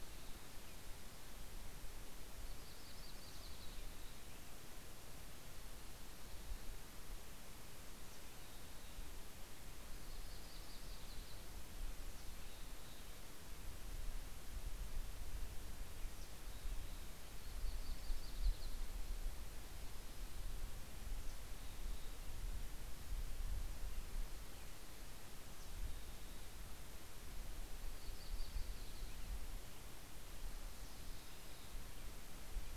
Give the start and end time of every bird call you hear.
[0.00, 4.99] American Robin (Turdus migratorius)
[2.29, 4.29] Yellow-rumped Warbler (Setophaga coronata)
[7.89, 9.49] Mountain Chickadee (Poecile gambeli)
[9.89, 11.59] Yellow-rumped Warbler (Setophaga coronata)
[11.69, 13.29] Mountain Chickadee (Poecile gambeli)
[15.79, 17.19] Mountain Chickadee (Poecile gambeli)
[16.89, 19.69] Yellow-rumped Warbler (Setophaga coronata)
[20.89, 22.29] Mountain Chickadee (Poecile gambeli)
[24.99, 26.79] Mountain Chickadee (Poecile gambeli)
[27.19, 29.99] Yellow-rumped Warbler (Setophaga coronata)
[30.39, 32.69] Mountain Chickadee (Poecile gambeli)

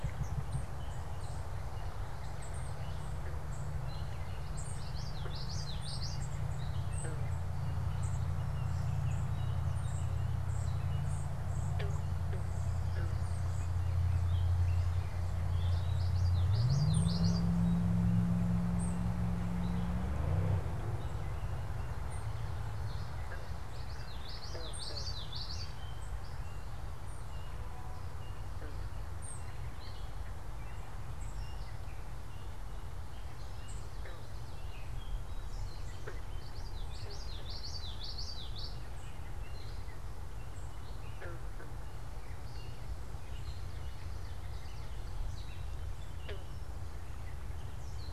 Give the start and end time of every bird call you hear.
[0.00, 14.00] unidentified bird
[0.00, 48.10] Gray Catbird (Dumetella carolinensis)
[4.10, 6.40] Common Yellowthroat (Geothlypis trichas)
[15.40, 17.60] Common Yellowthroat (Geothlypis trichas)
[16.80, 31.70] unidentified bird
[23.60, 25.90] Common Yellowthroat (Geothlypis trichas)
[33.40, 41.20] unidentified bird
[36.30, 38.90] Common Yellowthroat (Geothlypis trichas)

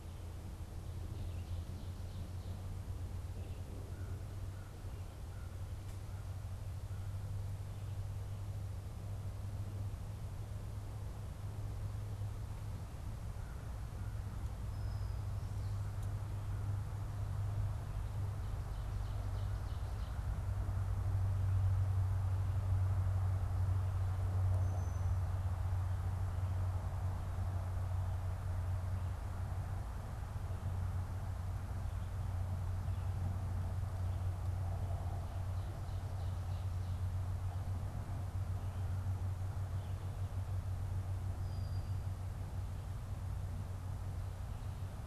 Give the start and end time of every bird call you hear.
[3.67, 7.47] American Crow (Corvus brachyrhynchos)
[14.47, 16.37] Brown-headed Cowbird (Molothrus ater)
[24.47, 26.07] Brown-headed Cowbird (Molothrus ater)
[41.17, 42.37] Brown-headed Cowbird (Molothrus ater)

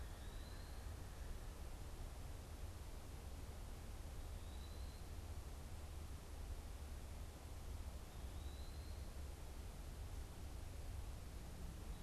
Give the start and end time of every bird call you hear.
[0.00, 12.03] Eastern Wood-Pewee (Contopus virens)

